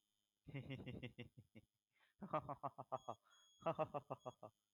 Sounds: Laughter